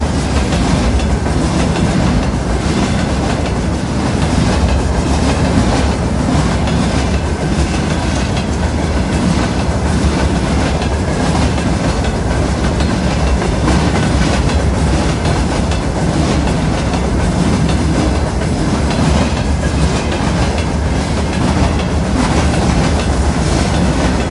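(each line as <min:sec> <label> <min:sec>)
0:00.0 A train engine rumbles loudly in a continuous, consistent tone. 0:24.3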